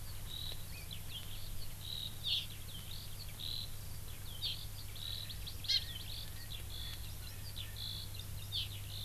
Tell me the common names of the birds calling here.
Eurasian Skylark, Hawaii Amakihi, Erckel's Francolin